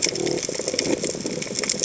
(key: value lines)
label: biophony
recorder: HydroMoth